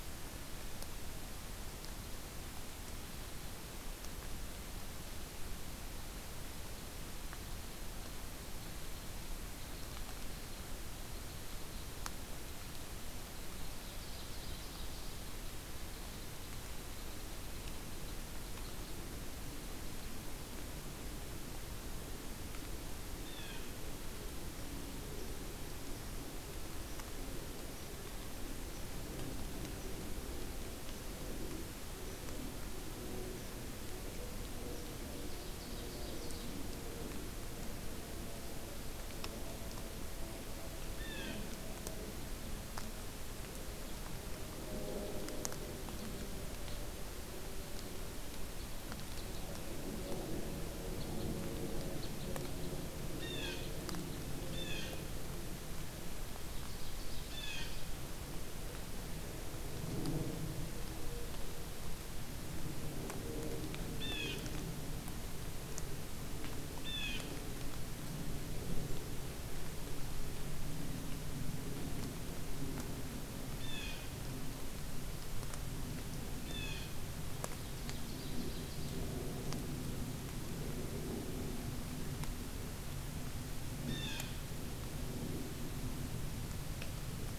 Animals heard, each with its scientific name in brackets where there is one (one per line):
Ovenbird (Seiurus aurocapilla)
Blue Jay (Cyanocitta cristata)
Red Crossbill (Loxia curvirostra)